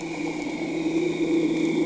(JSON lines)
{"label": "anthrophony, boat engine", "recorder": "HydroMoth"}